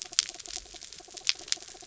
{"label": "anthrophony, mechanical", "recorder": "SoundTrap 300"}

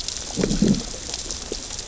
{"label": "biophony, growl", "recorder": "SoundTrap 600 or HydroMoth"}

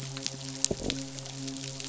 {"label": "biophony, midshipman", "recorder": "SoundTrap 500"}
{"label": "biophony", "recorder": "SoundTrap 500"}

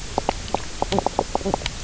{"label": "biophony, knock croak", "recorder": "SoundTrap 300"}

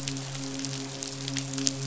{"label": "biophony, midshipman", "recorder": "SoundTrap 500"}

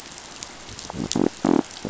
{"label": "biophony", "recorder": "SoundTrap 500"}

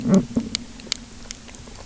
{"label": "biophony", "recorder": "SoundTrap 300"}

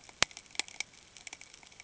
{"label": "ambient", "recorder": "HydroMoth"}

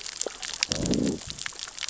{"label": "biophony, growl", "recorder": "SoundTrap 600 or HydroMoth"}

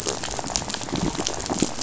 {"label": "biophony, rattle", "recorder": "SoundTrap 500"}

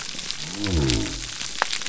{"label": "biophony", "recorder": "SoundTrap 300"}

